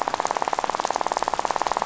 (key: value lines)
label: biophony, rattle
recorder: SoundTrap 500